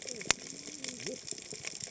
{"label": "biophony, cascading saw", "recorder": "HydroMoth"}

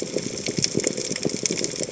{"label": "biophony, chatter", "recorder": "HydroMoth"}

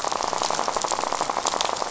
{"label": "biophony, rattle", "recorder": "SoundTrap 500"}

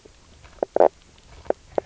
{"label": "biophony, knock croak", "recorder": "SoundTrap 300"}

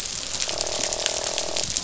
{"label": "biophony, croak", "recorder": "SoundTrap 500"}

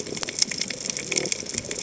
{"label": "biophony", "recorder": "HydroMoth"}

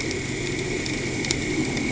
{"label": "anthrophony, boat engine", "recorder": "HydroMoth"}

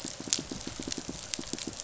{"label": "biophony, pulse", "recorder": "SoundTrap 500"}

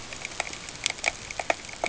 {"label": "ambient", "recorder": "HydroMoth"}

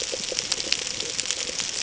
{"label": "ambient", "recorder": "HydroMoth"}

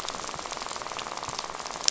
{"label": "biophony, rattle", "recorder": "SoundTrap 500"}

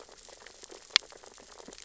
{"label": "biophony, sea urchins (Echinidae)", "recorder": "SoundTrap 600 or HydroMoth"}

